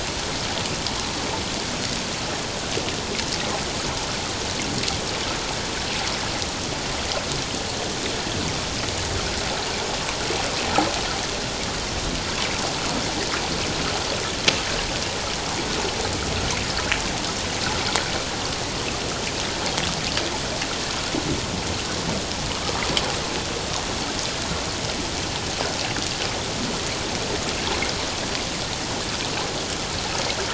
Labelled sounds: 22.6	22.9	water noise, 1.1 to 1.3 kHz

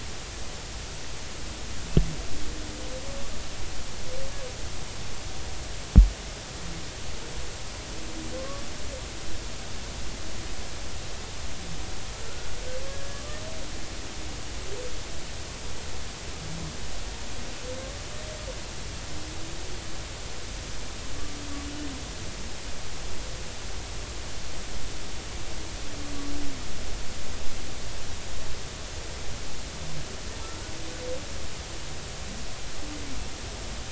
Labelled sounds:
8.4	8.6	humpback whale, 1.0 to 1.2 kHz
13.1	13.4	humpback whale, 1.1 to 1.2 kHz
13.8	14.2	humpback whale, 1.5 to 1.7 kHz

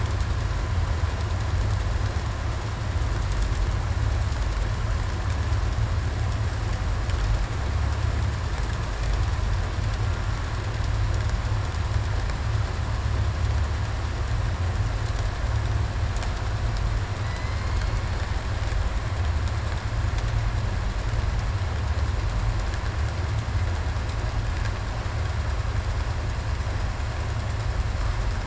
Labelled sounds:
17.2	17.7	killer whale, southern resident, 1.9 to 2.2 kHz

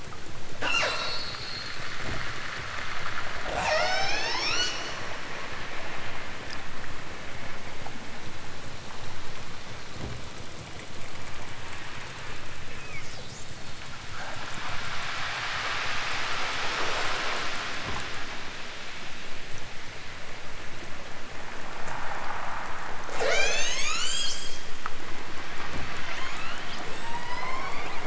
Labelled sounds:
0.6	1.9	killer whale, southern Alaska resident, 0.32 to 8.0 kHz
3.4	4.9	killer whale, southern Alaska resident, 0.28 to 8.0 kHz
12.9	14.0	killer whale, southern Alaska resident, 1.5 to 7.3 kHz
23.2	24.7	killer whale, southern Alaska resident, 0.18 to 8.0 kHz
26.0	28.0	killer whale, southern Alaska resident, 0.55 to 8.0 kHz

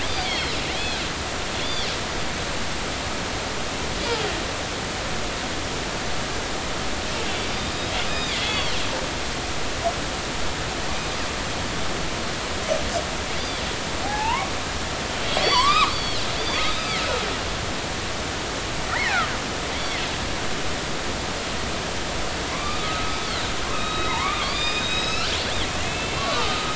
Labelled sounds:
0.2	1.0	killer whale, northern resident, A clan, AB subclan, 3.0 to 5.5 kHz
1.6	1.9	killer whale, northern resident, A clan, AB subclan, 3.1 to 4.8 kHz
8.1	8.8	killer whale, northern resident, A clan, AB subclan, 2.0 to 5.0 kHz
14.0	14.5	killer whale, northern resident, A clan, AB subclan, 0.80 to 1.2 kHz
15.4	17.1	killer whale, northern resident, A clan, AB subclan, 0.93 to 5.8 kHz
18.9	19.3	killer whale, northern resident, A clan, AB subclan, 1.2 to 2.3 kHz
22.5	26.7	killer whale, northern resident, A clan, AB subclan, 0.86 to 5.6 kHz

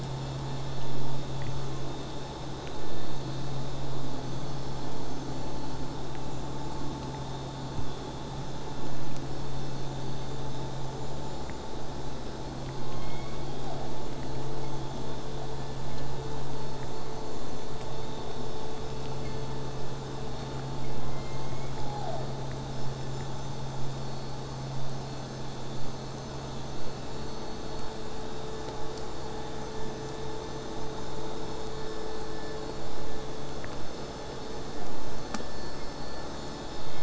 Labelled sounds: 12.9	13.8	killer whale, southern resident, J pod, call S01, 0.50 to 3.8 kHz
21.1	22.2	killer whale, southern resident, J pod, call S01, 0.40 to 2.5 kHz
22.7	27.7	vessel noise, 0 to 8.0 kHz

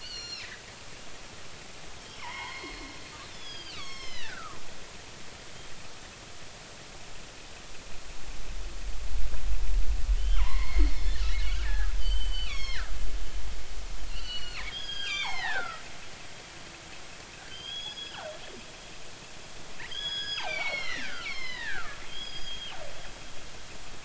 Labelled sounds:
0.0	0.5	killer whale, northern resident, G clan, 2.3 to 7.1 kHz
2.2	2.8	killer whale, northern resident, G clan, 0.80 to 4.4 kHz
3.2	4.6	killer whale, northern resident, G clan, 0.99 to 7.8 kHz
10.2	12.9	killer whale, northern resident, G clan, 0.90 to 7.7 kHz
14.1	15.8	killer whale, northern resident, G clan, 0.80 to 6.7 kHz
17.5	18.2	killer whale, northern resident, G clan, 3.0 to 5.1 kHz
19.9	22.8	killer whale, northern resident, G clan, 0.83 to 6.9 kHz

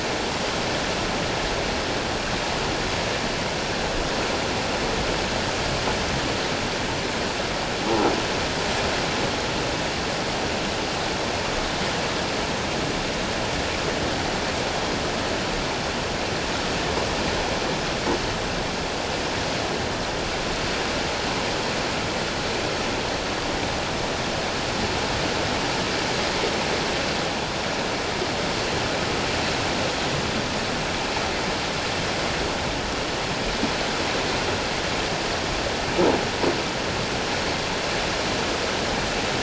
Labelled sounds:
7.8	8.1	croaking sound likely from a nearby submerged object, 0.78 to 1.0 kHz

